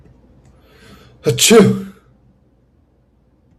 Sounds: Sneeze